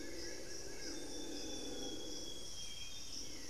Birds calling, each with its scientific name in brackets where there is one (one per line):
Long-winged Antwren (Myrmotherula longipennis)
Plain-winged Antshrike (Thamnophilus schistaceus)
Amazonian Grosbeak (Cyanoloxia rothschildii)
Hauxwell's Thrush (Turdus hauxwelli)